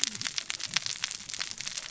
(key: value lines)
label: biophony, cascading saw
recorder: SoundTrap 600 or HydroMoth